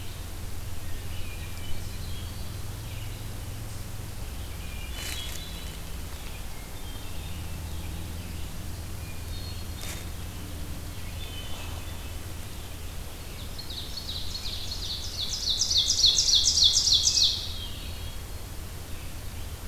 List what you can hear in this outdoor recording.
Red-eyed Vireo, Hermit Thrush, Ovenbird